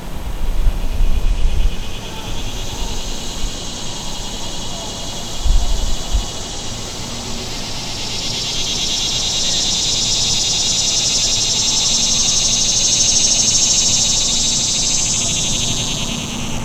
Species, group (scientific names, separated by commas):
Neotibicen tibicen, Cicadidae